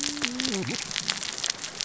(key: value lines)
label: biophony, cascading saw
recorder: SoundTrap 600 or HydroMoth